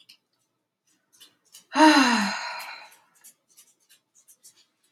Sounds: Sigh